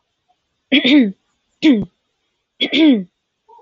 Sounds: Throat clearing